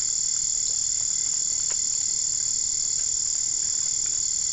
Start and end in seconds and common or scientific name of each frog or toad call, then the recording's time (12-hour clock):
none
2:30am